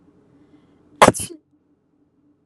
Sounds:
Sneeze